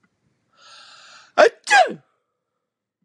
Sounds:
Sneeze